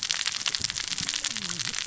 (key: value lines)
label: biophony, cascading saw
recorder: SoundTrap 600 or HydroMoth